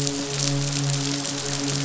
{"label": "biophony, midshipman", "recorder": "SoundTrap 500"}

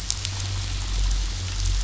{"label": "biophony", "recorder": "SoundTrap 500"}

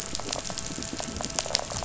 {"label": "biophony", "recorder": "SoundTrap 500"}
{"label": "anthrophony, boat engine", "recorder": "SoundTrap 500"}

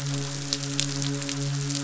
{"label": "biophony, midshipman", "recorder": "SoundTrap 500"}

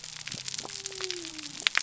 {"label": "biophony", "recorder": "SoundTrap 300"}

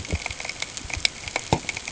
{"label": "ambient", "recorder": "HydroMoth"}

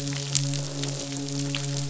{"label": "biophony, midshipman", "recorder": "SoundTrap 500"}
{"label": "biophony, croak", "recorder": "SoundTrap 500"}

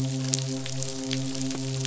{"label": "biophony, midshipman", "recorder": "SoundTrap 500"}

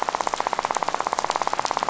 {"label": "biophony, rattle", "recorder": "SoundTrap 500"}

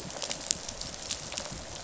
{"label": "biophony, rattle response", "recorder": "SoundTrap 500"}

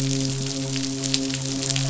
{"label": "biophony, midshipman", "recorder": "SoundTrap 500"}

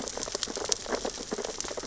{"label": "biophony, sea urchins (Echinidae)", "recorder": "SoundTrap 600 or HydroMoth"}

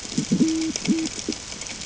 {"label": "ambient", "recorder": "HydroMoth"}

